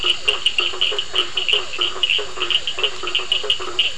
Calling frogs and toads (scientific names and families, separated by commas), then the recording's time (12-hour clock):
Boana faber (Hylidae), Elachistocleis bicolor (Microhylidae), Physalaemus cuvieri (Leptodactylidae), Sphaenorhynchus surdus (Hylidae)
9:30pm